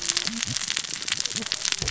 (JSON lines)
{"label": "biophony, cascading saw", "recorder": "SoundTrap 600 or HydroMoth"}